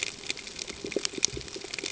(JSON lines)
{"label": "ambient", "recorder": "HydroMoth"}